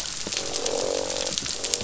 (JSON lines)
{"label": "biophony, croak", "recorder": "SoundTrap 500"}